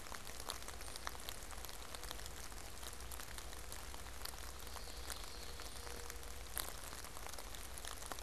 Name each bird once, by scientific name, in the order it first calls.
Geothlypis trichas